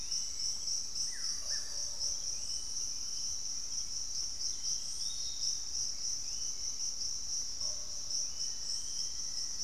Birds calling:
Bluish-fronted Jacamar (Galbula cyanescens)
Black-faced Antthrush (Formicarius analis)
Gray Antwren (Myrmotherula menetriesii)
Piratic Flycatcher (Legatus leucophaius)
Buff-throated Woodcreeper (Xiphorhynchus guttatus)

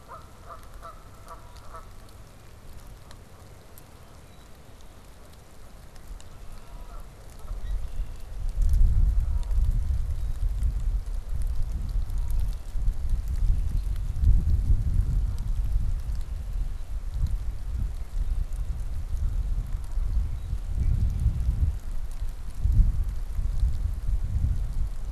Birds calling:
Canada Goose (Branta canadensis)
Red-winged Blackbird (Agelaius phoeniceus)

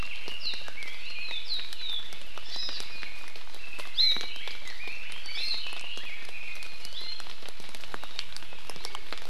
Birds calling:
Iiwi (Drepanis coccinea)
Red-billed Leiothrix (Leiothrix lutea)
Hawaii Amakihi (Chlorodrepanis virens)

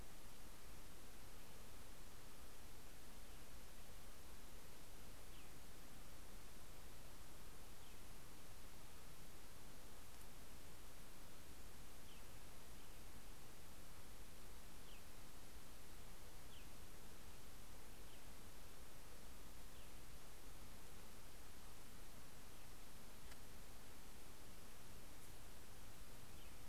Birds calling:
American Robin (Turdus migratorius)

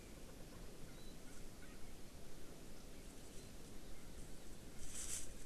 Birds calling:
Warbling White-eye (Zosterops japonicus)

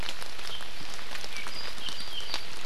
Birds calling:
Apapane (Himatione sanguinea)

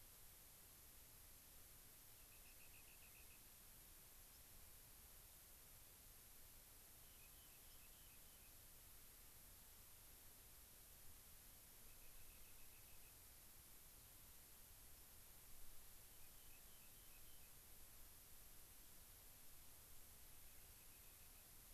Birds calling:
Rock Wren (Salpinctes obsoletus)
White-crowned Sparrow (Zonotrichia leucophrys)

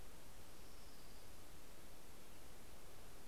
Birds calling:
Orange-crowned Warbler (Leiothlypis celata)

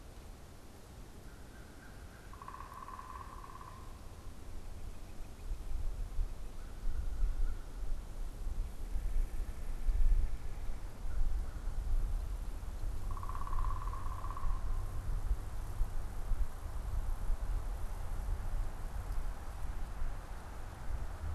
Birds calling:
unidentified bird
American Crow (Corvus brachyrhynchos)

